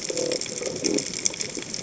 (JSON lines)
{"label": "biophony", "recorder": "HydroMoth"}